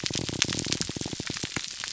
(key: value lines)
label: biophony, pulse
recorder: SoundTrap 300